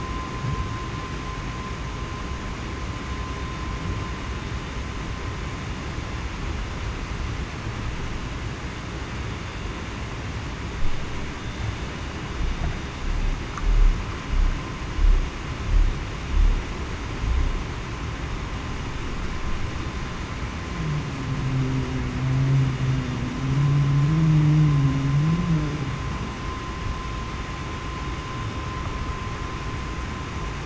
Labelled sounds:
24.1	24.6	humpback whale, 0.28 to 0.35 kHz

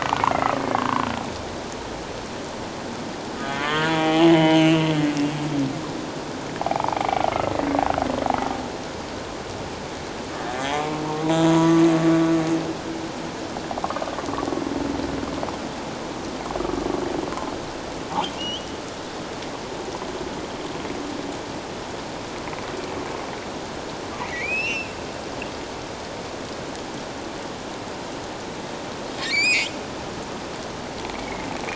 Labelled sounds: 0.8	1.1	humpback whale, 0.88 to 1.2 kHz
3.4	4.9	humpback whale, 0.78 to 3.4 kHz
6.6	7.1	humpback whale, 0.78 to 1.1 kHz
10.3	11.0	humpback whale, 0.97 to 1.8 kHz
11.5	11.8	humpback whale, 0.94 to 1.2 kHz
18.3	18.7	humpback whale, 2.7 to 3.4 kHz
24.2	24.9	humpback whale, 1.9 to 3.0 kHz
29.2	29.7	humpback whale, 2.0 to 7.6 kHz
31.1	31.5	humpback whale, 2.0 to 2.3 kHz

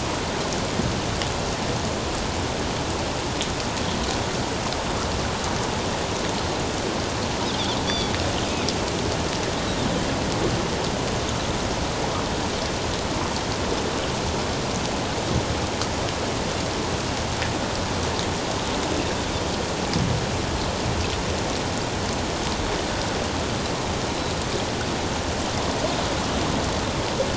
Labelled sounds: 7.9	8.1	Pacific white-sided dolphin, 3.3 to 4.8 kHz

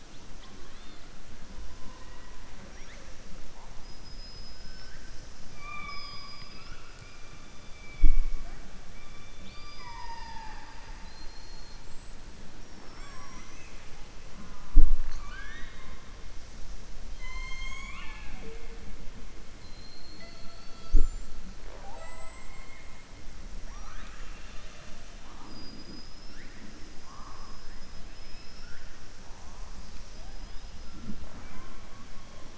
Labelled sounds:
5.5	7.1	killer whale, southern resident, 0.73 to 5.7 kHz
9.3	11.8	killer whale, southern resident, 0.84 to 5.8 kHz
17.1	18.7	killer whale, southern resident, 0.37 to 7.7 kHz
23.6	25.0	killer whale, southern resident, 0.94 to 6.0 kHz

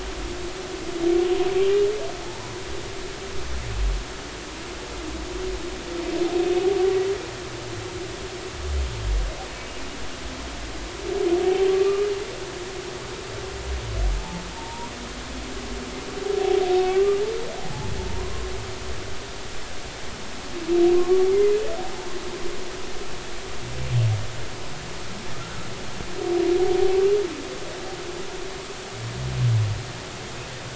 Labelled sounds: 11.7	12.1	humpback whale, 1.1 to 1.3 kHz
14.5	14.9	humpback whale, 0.86 to 1.0 kHz
16.8	17.2	humpback whale, 1.1 to 2.8 kHz
17.6	18.5	humpback whale, 0.80 to 1.1 kHz
20.9	21.6	humpback whale, 1.0 to 2.2 kHz

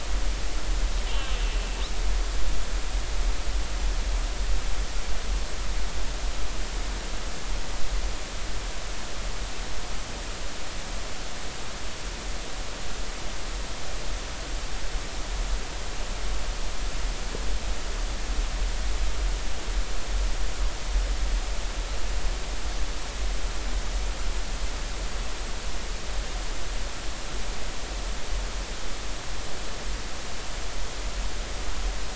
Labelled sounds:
1.1	1.3	killer whale, northern resident, 2.6 to 2.9 kHz

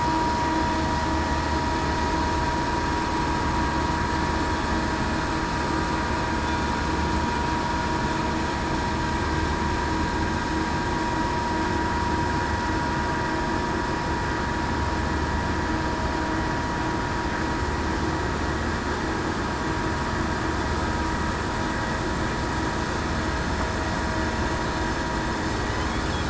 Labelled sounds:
4.5	4.9	killer whale, southern resident, 7.9 to 8.0 kHz

